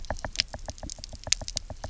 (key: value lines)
label: biophony, knock
recorder: SoundTrap 300